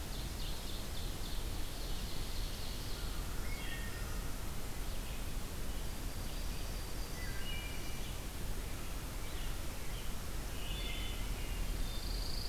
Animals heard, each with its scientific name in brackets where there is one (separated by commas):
Yellow-rumped Warbler (Setophaga coronata), Pine Warbler (Setophaga pinus), Red-eyed Vireo (Vireo olivaceus), Ovenbird (Seiurus aurocapilla), Wood Thrush (Hylocichla mustelina), Hermit Thrush (Catharus guttatus)